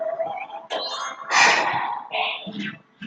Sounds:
Sigh